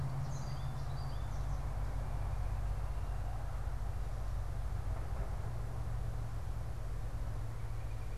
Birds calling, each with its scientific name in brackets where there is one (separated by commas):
Northern Flicker (Colaptes auratus), American Goldfinch (Spinus tristis)